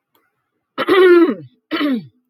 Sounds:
Throat clearing